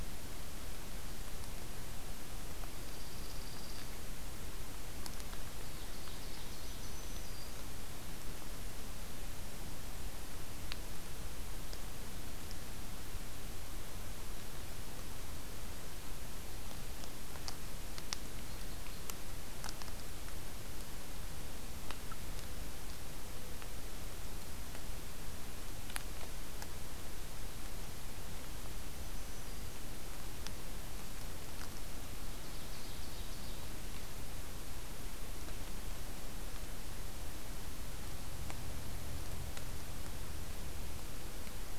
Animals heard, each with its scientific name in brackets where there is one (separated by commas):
Black-throated Green Warbler (Setophaga virens), Dark-eyed Junco (Junco hyemalis), Ovenbird (Seiurus aurocapilla)